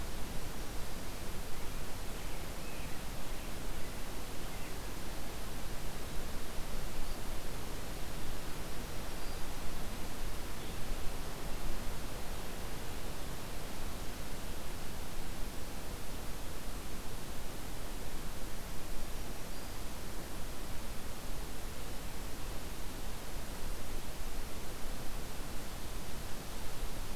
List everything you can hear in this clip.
Black-throated Green Warbler